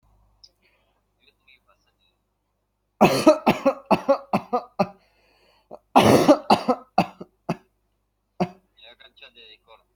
{"expert_labels": [{"quality": "ok", "cough_type": "dry", "dyspnea": false, "wheezing": false, "stridor": false, "choking": false, "congestion": false, "nothing": true, "diagnosis": "COVID-19", "severity": "mild"}]}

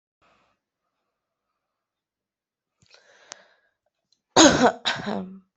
{"expert_labels": [{"quality": "good", "cough_type": "dry", "dyspnea": false, "wheezing": false, "stridor": false, "choking": false, "congestion": false, "nothing": true, "diagnosis": "healthy cough", "severity": "pseudocough/healthy cough"}], "age": 20, "gender": "female", "respiratory_condition": false, "fever_muscle_pain": false, "status": "healthy"}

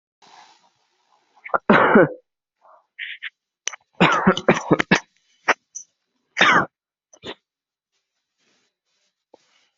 {"expert_labels": [{"quality": "good", "cough_type": "dry", "dyspnea": false, "wheezing": false, "stridor": false, "choking": false, "congestion": false, "nothing": true, "diagnosis": "upper respiratory tract infection", "severity": "mild"}]}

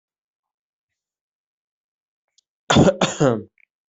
{"expert_labels": [{"quality": "good", "cough_type": "dry", "dyspnea": false, "wheezing": false, "stridor": false, "choking": false, "congestion": true, "nothing": false, "diagnosis": "upper respiratory tract infection", "severity": "mild"}], "age": 22, "gender": "male", "respiratory_condition": false, "fever_muscle_pain": false, "status": "healthy"}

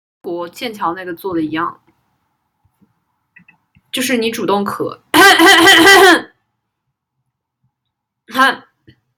{"expert_labels": [{"quality": "good", "cough_type": "dry", "dyspnea": false, "wheezing": false, "stridor": false, "choking": false, "congestion": false, "nothing": true, "diagnosis": "healthy cough", "severity": "pseudocough/healthy cough"}], "age": 25, "gender": "female", "respiratory_condition": false, "fever_muscle_pain": false, "status": "healthy"}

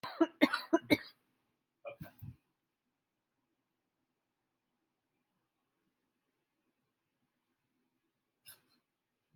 {"expert_labels": [{"quality": "ok", "cough_type": "dry", "dyspnea": false, "wheezing": false, "stridor": false, "choking": false, "congestion": false, "nothing": true, "diagnosis": "lower respiratory tract infection", "severity": "mild"}], "age": 32, "gender": "female", "respiratory_condition": true, "fever_muscle_pain": false, "status": "symptomatic"}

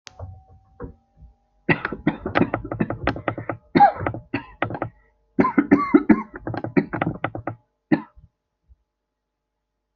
{"expert_labels": [{"quality": "poor", "cough_type": "wet", "dyspnea": false, "wheezing": false, "stridor": false, "choking": false, "congestion": false, "nothing": true, "diagnosis": "lower respiratory tract infection", "severity": "mild"}], "age": 26, "gender": "male", "respiratory_condition": true, "fever_muscle_pain": false, "status": "healthy"}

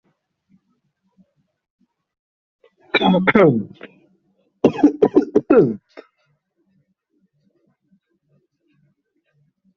{"expert_labels": [{"quality": "ok", "cough_type": "unknown", "dyspnea": false, "wheezing": false, "stridor": false, "choking": false, "congestion": false, "nothing": true, "diagnosis": "upper respiratory tract infection", "severity": "unknown"}], "age": 19, "gender": "male", "respiratory_condition": true, "fever_muscle_pain": false, "status": "symptomatic"}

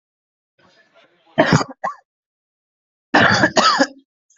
{"expert_labels": [{"quality": "ok", "cough_type": "wet", "dyspnea": false, "wheezing": false, "stridor": false, "choking": false, "congestion": false, "nothing": true, "diagnosis": "lower respiratory tract infection", "severity": "mild"}], "age": 22, "gender": "male", "respiratory_condition": false, "fever_muscle_pain": false, "status": "symptomatic"}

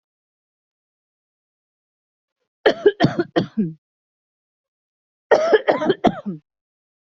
{"expert_labels": [{"quality": "good", "cough_type": "dry", "dyspnea": false, "wheezing": false, "stridor": false, "choking": false, "congestion": false, "nothing": true, "diagnosis": "COVID-19", "severity": "mild"}], "age": 34, "gender": "female", "respiratory_condition": false, "fever_muscle_pain": false, "status": "symptomatic"}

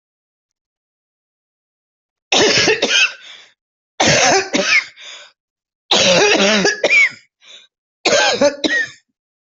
{"expert_labels": [{"quality": "good", "cough_type": "unknown", "dyspnea": false, "wheezing": false, "stridor": false, "choking": false, "congestion": false, "nothing": true, "diagnosis": "lower respiratory tract infection", "severity": "severe"}], "age": 74, "gender": "female", "respiratory_condition": false, "fever_muscle_pain": false, "status": "healthy"}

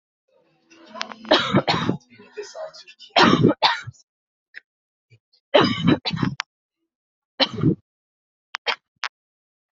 {"expert_labels": [{"quality": "poor", "cough_type": "unknown", "dyspnea": false, "wheezing": false, "stridor": false, "choking": false, "congestion": false, "nothing": true, "diagnosis": "COVID-19", "severity": "mild"}], "gender": "female", "respiratory_condition": false, "fever_muscle_pain": false, "status": "COVID-19"}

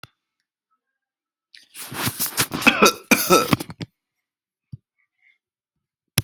{"expert_labels": [{"quality": "ok", "cough_type": "dry", "dyspnea": false, "wheezing": false, "stridor": false, "choking": false, "congestion": false, "nothing": true, "diagnosis": "upper respiratory tract infection", "severity": "mild"}], "age": 37, "gender": "male", "respiratory_condition": false, "fever_muscle_pain": false, "status": "healthy"}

